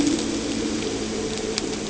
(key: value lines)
label: anthrophony, boat engine
recorder: HydroMoth